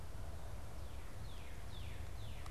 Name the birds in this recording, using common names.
Northern Cardinal